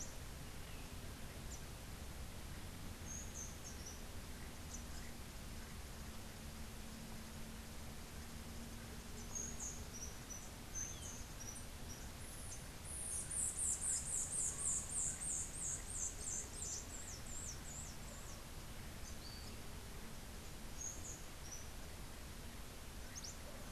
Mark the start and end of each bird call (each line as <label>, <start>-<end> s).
Rufous-tailed Hummingbird (Amazilia tzacatl), 2.8-4.3 s
Rufous-tailed Hummingbird (Amazilia tzacatl), 9.3-11.8 s
White-eared Ground-Sparrow (Melozone leucotis), 12.9-18.5 s
Rufous-tailed Hummingbird (Amazilia tzacatl), 20.5-21.8 s
Cabanis's Wren (Cantorchilus modestus), 23.0-23.5 s